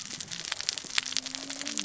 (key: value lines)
label: biophony, cascading saw
recorder: SoundTrap 600 or HydroMoth